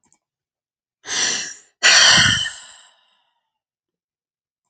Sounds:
Sigh